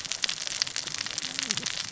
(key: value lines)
label: biophony, cascading saw
recorder: SoundTrap 600 or HydroMoth